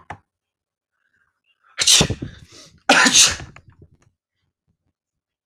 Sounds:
Sneeze